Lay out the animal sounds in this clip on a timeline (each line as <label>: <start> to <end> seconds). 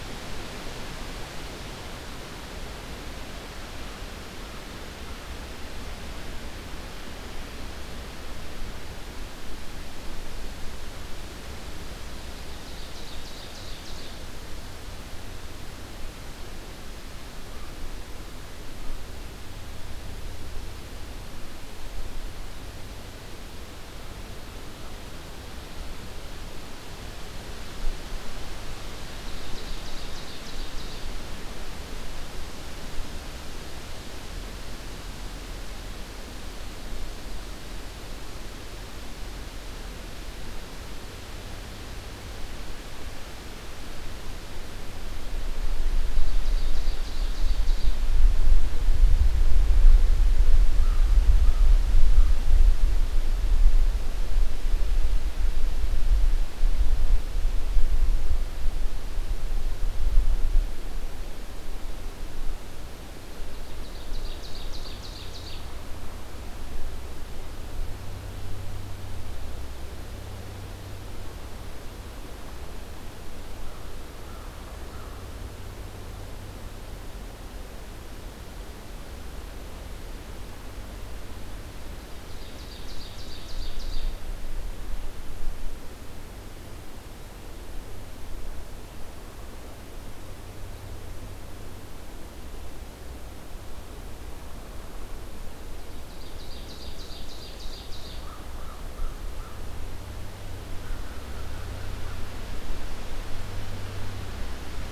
Ovenbird (Seiurus aurocapilla): 12.1 to 14.2 seconds
Ovenbird (Seiurus aurocapilla): 29.1 to 31.1 seconds
Ovenbird (Seiurus aurocapilla): 45.9 to 48.1 seconds
Ovenbird (Seiurus aurocapilla): 63.4 to 65.8 seconds
American Crow (Corvus brachyrhynchos): 73.5 to 75.3 seconds
Ovenbird (Seiurus aurocapilla): 82.1 to 84.2 seconds
Ovenbird (Seiurus aurocapilla): 95.7 to 98.3 seconds
American Crow (Corvus brachyrhynchos): 98.1 to 99.7 seconds
American Crow (Corvus brachyrhynchos): 100.7 to 102.3 seconds